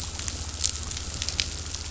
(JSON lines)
{"label": "anthrophony, boat engine", "recorder": "SoundTrap 500"}